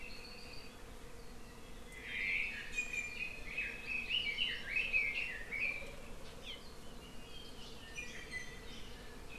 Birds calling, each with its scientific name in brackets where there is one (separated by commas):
Iiwi (Drepanis coccinea), Red-billed Leiothrix (Leiothrix lutea), Apapane (Himatione sanguinea), Hawaii Amakihi (Chlorodrepanis virens)